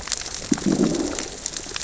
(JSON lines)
{"label": "biophony, growl", "recorder": "SoundTrap 600 or HydroMoth"}